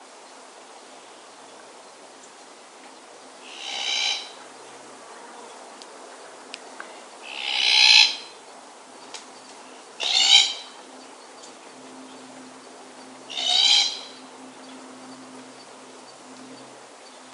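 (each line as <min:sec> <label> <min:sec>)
0:00.0 Birds twitter rhythmically and softly in the distance. 0:17.3
0:00.0 Water rushing softly in the distance. 0:17.3
0:03.5 A parrot screams loudly once in the distance. 0:04.3
0:07.3 A parrot screams loudly once in the distance. 0:08.2
0:10.0 A parrot screams loudly once in the distance. 0:10.6
0:11.8 A soft, distant humming noise from a machine. 0:17.3
0:13.3 A parrot screams loudly once in the distance. 0:14.1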